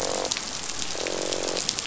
{"label": "biophony, croak", "recorder": "SoundTrap 500"}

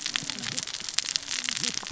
{"label": "biophony, cascading saw", "recorder": "SoundTrap 600 or HydroMoth"}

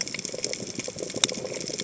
{"label": "biophony, chatter", "recorder": "HydroMoth"}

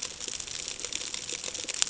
{"label": "ambient", "recorder": "HydroMoth"}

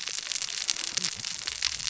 {"label": "biophony, cascading saw", "recorder": "SoundTrap 600 or HydroMoth"}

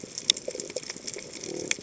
{"label": "biophony", "recorder": "HydroMoth"}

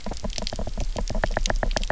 {"label": "biophony, knock", "recorder": "SoundTrap 300"}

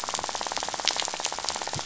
{"label": "biophony, rattle", "recorder": "SoundTrap 500"}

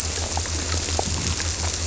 {"label": "biophony", "recorder": "SoundTrap 300"}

